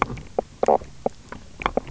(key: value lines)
label: biophony, knock croak
recorder: SoundTrap 300